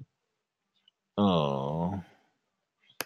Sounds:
Sigh